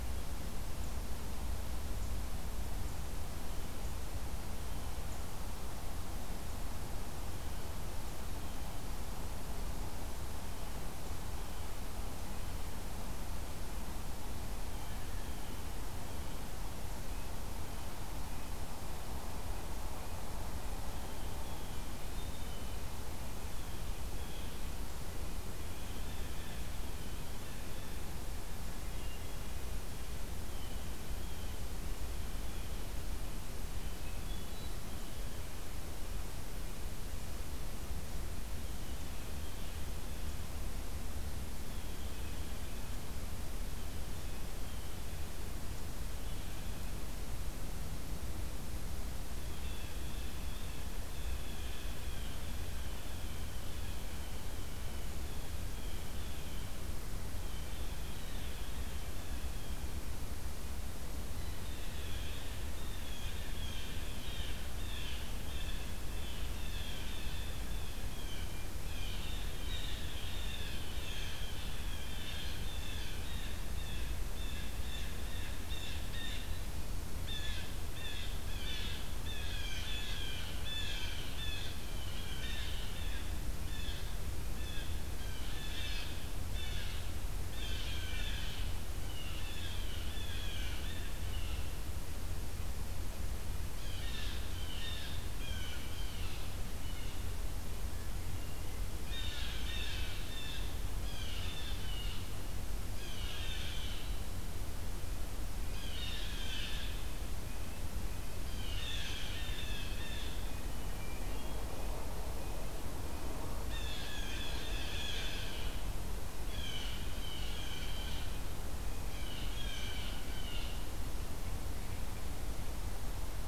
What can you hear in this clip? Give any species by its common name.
Blue Jay, Red-breasted Nuthatch, Hermit Thrush